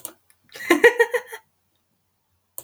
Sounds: Laughter